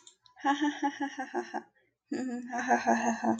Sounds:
Laughter